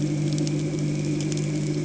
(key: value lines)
label: anthrophony, boat engine
recorder: HydroMoth